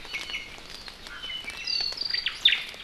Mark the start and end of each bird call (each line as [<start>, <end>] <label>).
[0.00, 0.60] Iiwi (Drepanis coccinea)
[1.50, 2.00] Iiwi (Drepanis coccinea)
[2.10, 2.70] Omao (Myadestes obscurus)